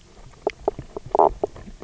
{"label": "biophony, knock croak", "recorder": "SoundTrap 300"}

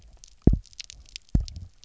{"label": "biophony, double pulse", "recorder": "SoundTrap 300"}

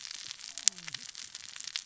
{"label": "biophony, cascading saw", "recorder": "SoundTrap 600 or HydroMoth"}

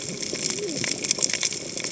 {"label": "biophony, cascading saw", "recorder": "HydroMoth"}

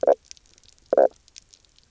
{"label": "biophony, knock croak", "recorder": "SoundTrap 300"}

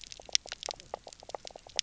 {"label": "biophony, knock croak", "recorder": "SoundTrap 300"}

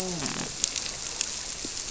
{"label": "biophony, grouper", "recorder": "SoundTrap 300"}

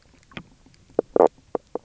{"label": "biophony, knock croak", "recorder": "SoundTrap 300"}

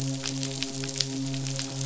{"label": "biophony, midshipman", "recorder": "SoundTrap 500"}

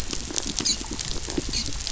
{"label": "biophony, dolphin", "recorder": "SoundTrap 500"}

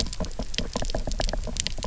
{"label": "biophony, knock", "recorder": "SoundTrap 300"}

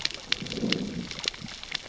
{"label": "biophony, growl", "recorder": "SoundTrap 600 or HydroMoth"}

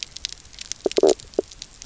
{"label": "biophony, knock croak", "recorder": "SoundTrap 300"}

